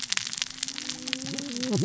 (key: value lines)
label: biophony, cascading saw
recorder: SoundTrap 600 or HydroMoth